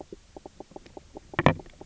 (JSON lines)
{"label": "biophony, knock croak", "recorder": "SoundTrap 300"}